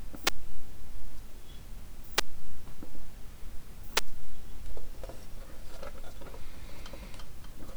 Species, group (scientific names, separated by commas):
Poecilimon elegans, Orthoptera